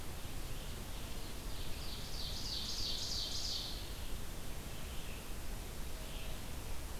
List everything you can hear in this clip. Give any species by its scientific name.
Seiurus aurocapilla, Vireo olivaceus